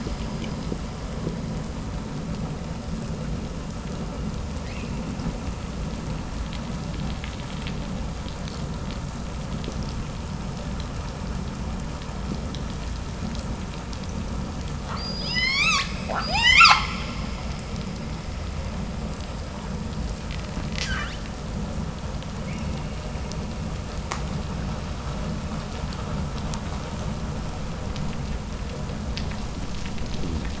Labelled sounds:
4.5	5.0	killer whale, 1.5 to 7.6 kHz
14.7	17.3	killer whale, 0.46 to 8.0 kHz
20.2	21.3	killer whale, 0.68 to 8.0 kHz
22.4	22.9	killer whale, 1.7 to 3.3 kHz

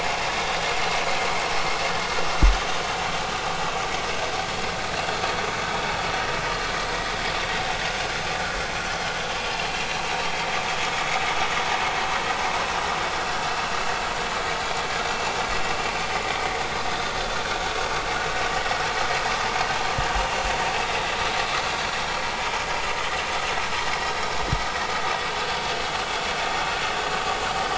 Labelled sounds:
9.7	10.0	vessel noise, 5.6 to 5.8 kHz

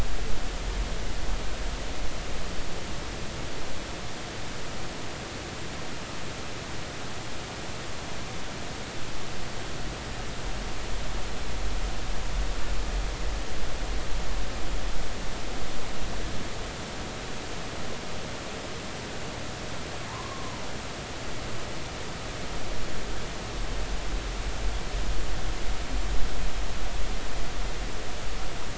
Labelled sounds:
20.1	20.6	humpback whale, 0.86 to 1.2 kHz

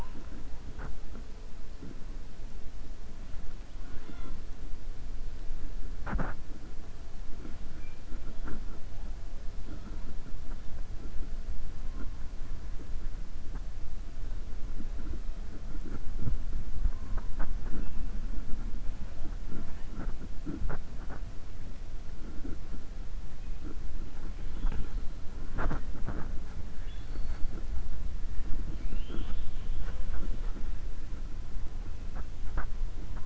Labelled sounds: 26.7	27.4	killer whale, southern resident, 1.8 to 4.6 kHz

